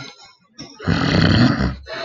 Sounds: Throat clearing